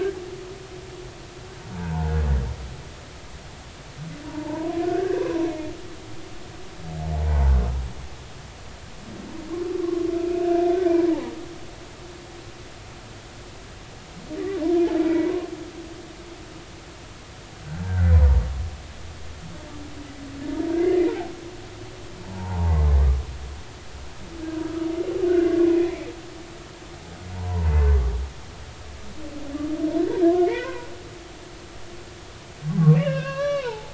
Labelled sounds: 1.7	2.2	humpback whale, 0.80 to 1.7 kHz
4.2	5.7	humpback whale, 0.83 to 2.3 kHz
7.0	7.5	humpback whale, 0.80 to 0.99 kHz
9.8	10.0	humpback whale, 0.99 to 1.2 kHz
11.1	11.3	humpback whale, 0.80 to 1.0 kHz
15.1	15.3	humpback whale, 2.2 to 2.5 kHz
17.8	18.2	humpback whale, 1.4 to 1.7 kHz
22.2	22.8	humpback whale, 0.80 to 1.2 kHz
25.3	26.0	humpback whale, 1.4 to 2.1 kHz
27.4	27.7	humpback whale, 0.83 to 1.1 kHz
30.4	30.9	humpback whale, 0.90 to 2.6 kHz
32.9	33.9	humpback whale, 0.80 to 5.8 kHz

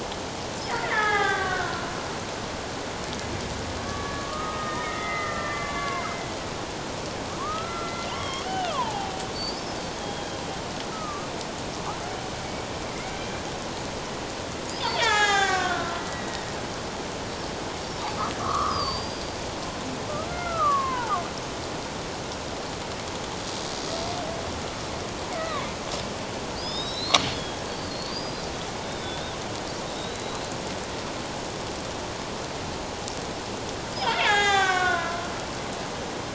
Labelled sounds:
0.8	1.9	killer whale, Bigg's (transient), 0.78 to 3.7 kHz
3.8	6.1	killer whale, Bigg's (transient), 0.94 to 3.8 kHz
7.4	9.7	killer whale, Bigg's (transient), 0.78 to 5.6 kHz
10.0	10.4	killer whale, Bigg's (transient), 3.1 to 3.3 kHz
10.9	11.3	killer whale, Bigg's (transient), 1.1 to 1.3 kHz
12.9	13.2	killer whale, Bigg's (transient), 2.0 to 2.3 kHz
14.8	16.5	killer whale, Bigg's (transient), 0.78 to 7.6 kHz
18.4	19.4	killer whale, Bigg's (transient), 0.97 to 5.2 kHz
20.3	21.2	killer whale, Bigg's (transient), 0.78 to 2.2 kHz
25.4	25.7	killer whale, Bigg's (transient), 0.97 to 1.3 kHz
26.6	28.5	killer whale, Bigg's (transient), 3.2 to 5.2 kHz
28.8	29.3	killer whale, Bigg's (transient), 3.4 to 3.8 kHz
29.9	30.5	killer whale, Bigg's (transient), 3.6 to 4.2 kHz
33.9	35.2	killer whale, Bigg's (transient), 0.78 to 7.8 kHz

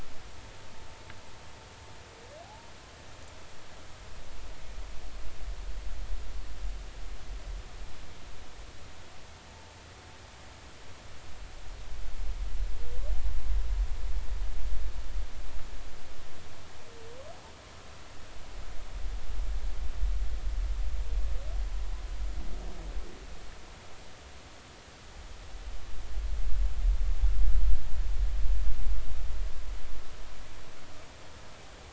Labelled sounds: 2.4	2.7	humpback whale, 0.80 to 1.0 kHz

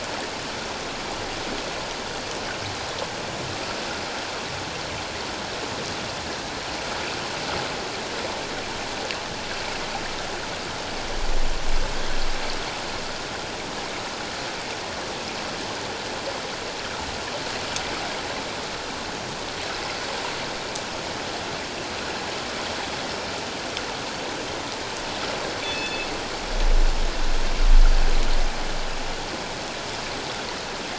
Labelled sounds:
25.6	26.1	killer whale, northern resident, G clan, call N24ii, 2.5 to 4.4 kHz

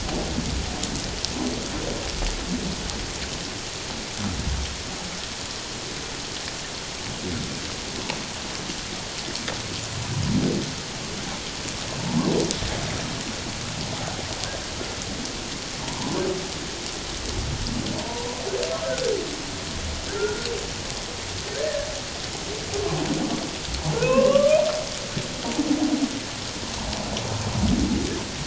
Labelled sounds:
15.8	16.2	humpback whale, 0.84 to 1.1 kHz
18.0	18.3	humpback whale, 0.88 to 1.0 kHz
20.1	20.5	humpback whale, 1.3 to 1.5 kHz
24.0	24.6	humpback whale, 0.88 to 2.9 kHz

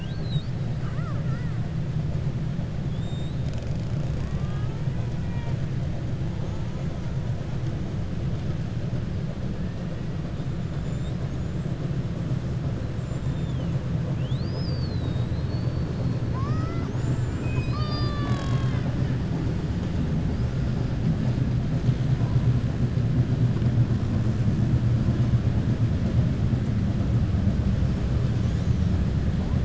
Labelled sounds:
0.7	1.5	killer whale, 0.59 to 2.1 kHz

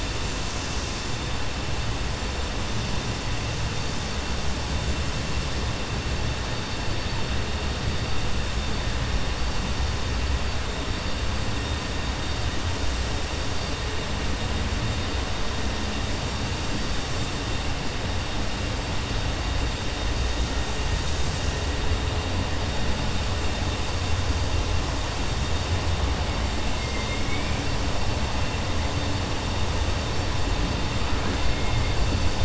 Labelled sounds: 26.8	27.6	killer whale, 2.1 to 2.9 kHz

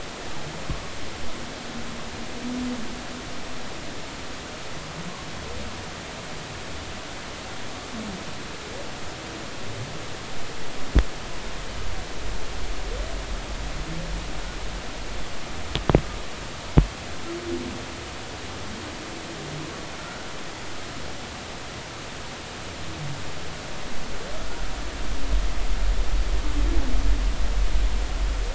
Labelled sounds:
20.0	20.3	humpback whale, 1.3 to 1.5 kHz

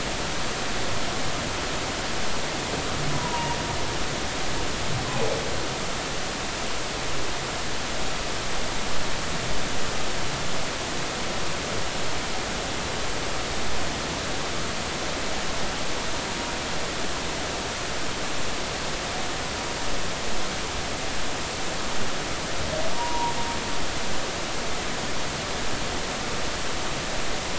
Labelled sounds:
3.1	3.6	humpback whale, 0.90 to 1.0 kHz
22.9	23.3	humpback whale, 0.90 to 1.1 kHz

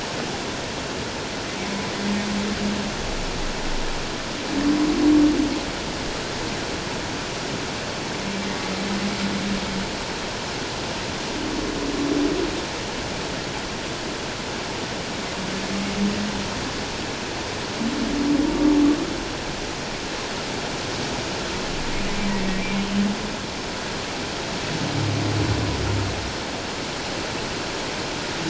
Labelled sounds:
22.8	23.1	humpback whale, 2.9 to 3.2 kHz

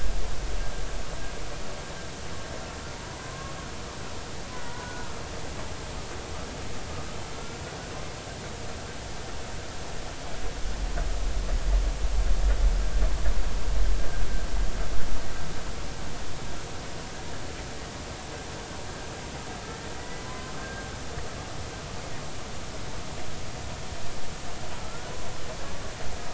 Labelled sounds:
3.0	3.6	humpback whale, 0.96 to 1.1 kHz
4.6	5.1	humpback whale, 0.93 to 1.5 kHz
7.3	7.6	humpback whale, 1.3 to 1.4 kHz
19.9	20.8	humpback whale, 0.96 to 2.0 kHz
24.8	25.1	humpback whale, 1.2 to 1.5 kHz

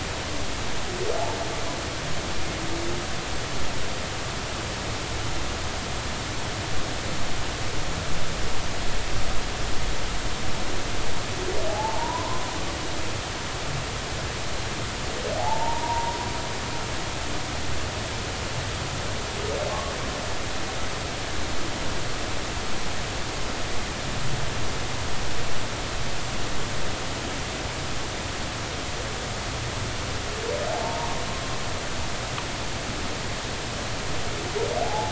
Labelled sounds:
11.7	12.4	humpback whale, 0.80 to 1.1 kHz
15.4	16.2	humpback whale, 0.80 to 0.99 kHz
30.7	31.2	humpback whale, 0.80 to 0.99 kHz
34.8	35.1	humpback whale, 0.80 to 0.93 kHz

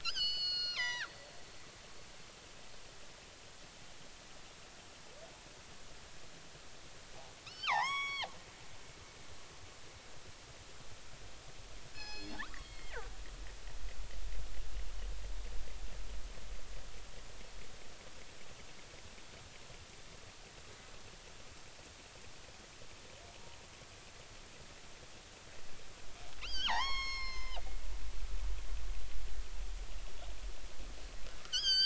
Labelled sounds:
0.0	1.1	killer whale, northern resident, G clan, 0.80 to 7.5 kHz
7.5	8.3	killer whale, northern resident, G clan, 0.80 to 7.9 kHz
11.9	13.1	killer whale, northern resident, G clan, 1.1 to 6.0 kHz
26.4	27.6	killer whale, northern resident, G clan, 0.80 to 7.6 kHz
31.4	31.8	killer whale, northern resident, G clan, 1.2 to 8.0 kHz

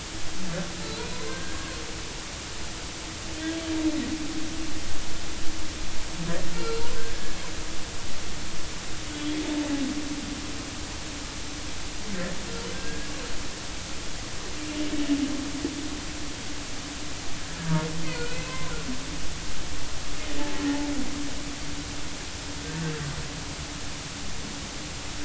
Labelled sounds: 0.8	1.8	humpback whale, 1.0 to 4.5 kHz
6.5	6.9	humpback whale, 1.3 to 4.2 kHz
12.7	13.1	humpback whale, 1.5 to 1.7 kHz
18.2	18.7	humpback whale, 0.96 to 2.6 kHz

